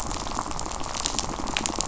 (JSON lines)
{"label": "biophony, rattle", "recorder": "SoundTrap 500"}